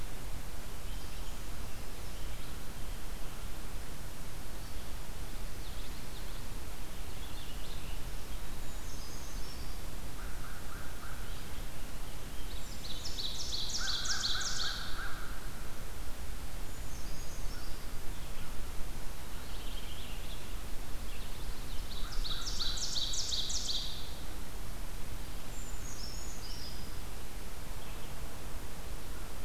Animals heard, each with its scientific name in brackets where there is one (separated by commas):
Ovenbird (Seiurus aurocapilla), Brown Creeper (Certhia americana), American Crow (Corvus brachyrhynchos), Common Yellowthroat (Geothlypis trichas), Purple Finch (Haemorhous purpureus)